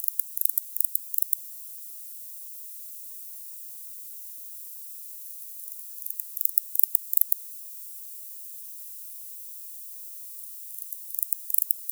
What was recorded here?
Barbitistes yersini, an orthopteran